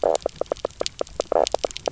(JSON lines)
{"label": "biophony, knock croak", "recorder": "SoundTrap 300"}